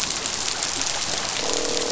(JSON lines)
{"label": "biophony, croak", "recorder": "SoundTrap 500"}